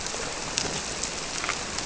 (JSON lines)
{"label": "biophony", "recorder": "SoundTrap 300"}